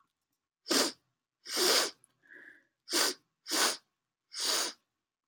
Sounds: Sniff